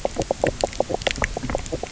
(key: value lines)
label: biophony, knock croak
recorder: SoundTrap 300